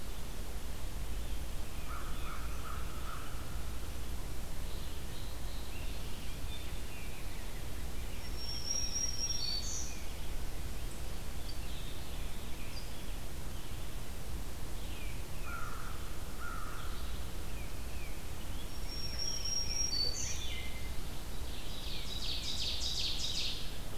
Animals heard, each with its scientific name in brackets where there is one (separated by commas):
unidentified call, Black-throated Green Warbler (Setophaga virens), American Robin (Turdus migratorius), Tufted Titmouse (Baeolophus bicolor), Wood Thrush (Hylocichla mustelina), Ovenbird (Seiurus aurocapilla), American Crow (Corvus brachyrhynchos)